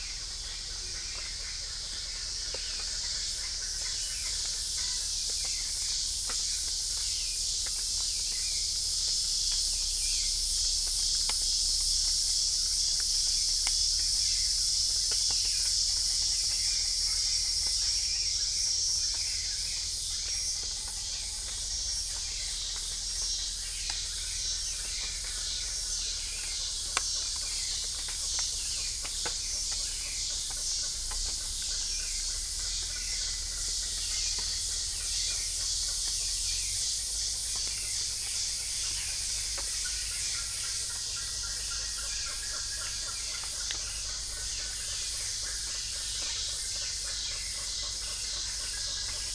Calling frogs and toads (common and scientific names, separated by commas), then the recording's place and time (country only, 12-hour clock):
none
Brazil, 5:30am